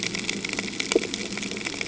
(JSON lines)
{"label": "ambient", "recorder": "HydroMoth"}